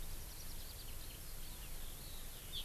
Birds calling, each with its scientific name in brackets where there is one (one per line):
Eurasian Skylark (Alauda arvensis)